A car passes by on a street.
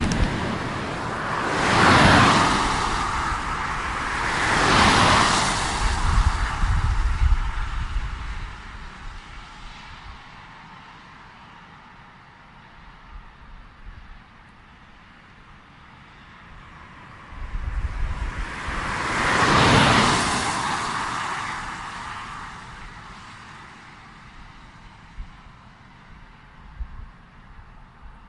0.9s 9.0s, 17.3s 22.3s

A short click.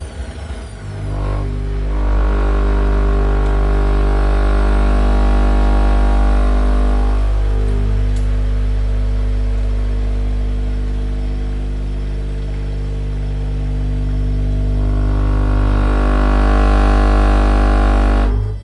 3.4s 3.6s, 8.1s 8.3s

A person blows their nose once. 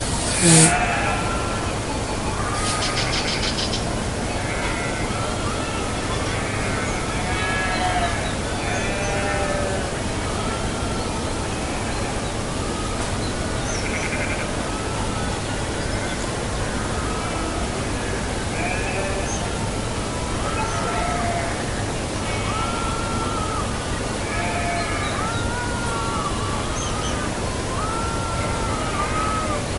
0.3s 0.9s

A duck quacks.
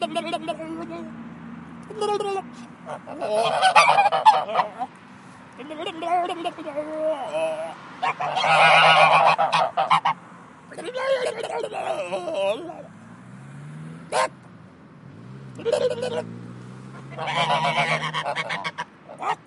3.2s 5.2s, 8.1s 10.6s, 16.9s 19.5s

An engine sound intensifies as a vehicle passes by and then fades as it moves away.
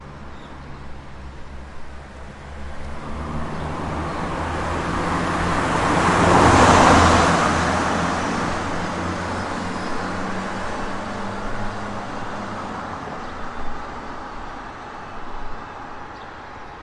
2.5s 13.6s

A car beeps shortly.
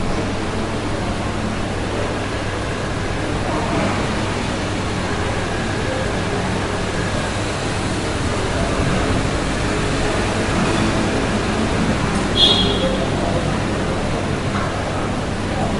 12.3s 13.4s

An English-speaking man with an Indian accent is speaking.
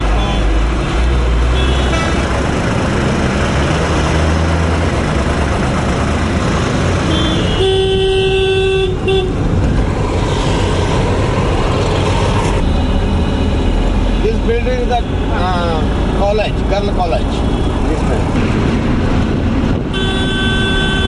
14.0s 18.7s

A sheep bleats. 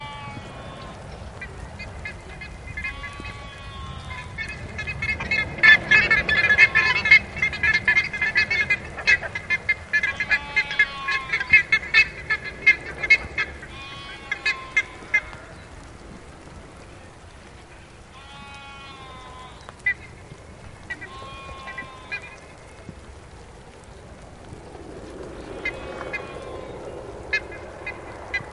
0.0s 1.1s, 2.9s 4.4s, 6.1s 7.2s, 9.9s 11.5s, 13.6s 15.0s, 18.2s 19.6s, 20.9s 22.3s, 25.3s 27.0s

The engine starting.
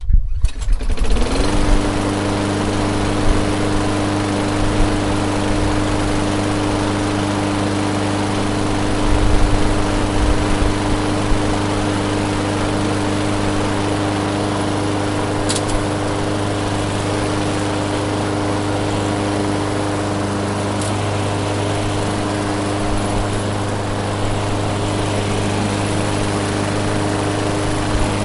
0.0s 1.4s

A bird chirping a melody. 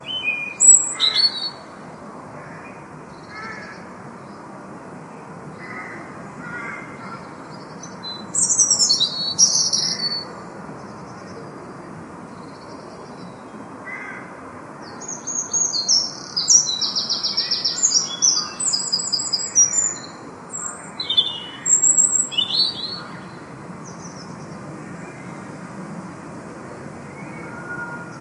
0.0s 1.6s, 8.3s 10.3s, 14.9s 23.3s

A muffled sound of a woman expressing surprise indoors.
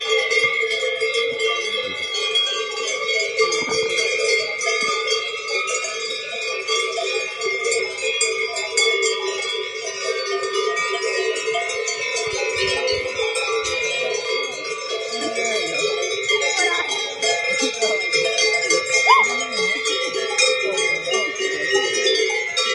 19.0s 19.3s

